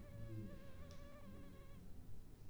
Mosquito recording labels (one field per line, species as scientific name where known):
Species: mosquito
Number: one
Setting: cup